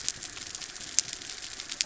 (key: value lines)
label: anthrophony, boat engine
recorder: SoundTrap 300